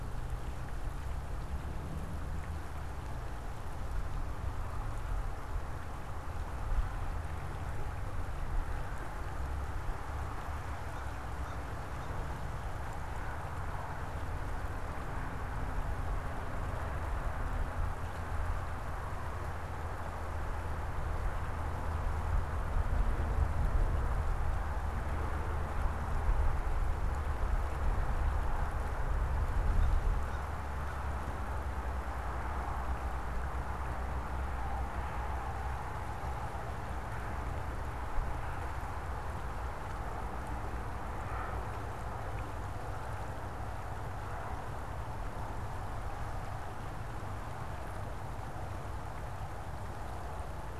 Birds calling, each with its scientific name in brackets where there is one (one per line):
American Crow (Corvus brachyrhynchos)